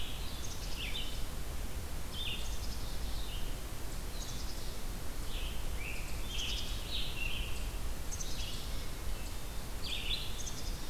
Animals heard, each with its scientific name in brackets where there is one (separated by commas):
Scarlet Tanager (Piranga olivacea), Black-capped Chickadee (Poecile atricapillus), Red-eyed Vireo (Vireo olivaceus)